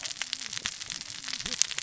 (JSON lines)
{"label": "biophony, cascading saw", "recorder": "SoundTrap 600 or HydroMoth"}